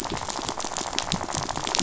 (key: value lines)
label: biophony, rattle
recorder: SoundTrap 500

label: biophony
recorder: SoundTrap 500